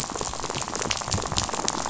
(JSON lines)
{"label": "biophony, rattle", "recorder": "SoundTrap 500"}